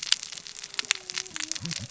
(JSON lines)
{"label": "biophony, cascading saw", "recorder": "SoundTrap 600 or HydroMoth"}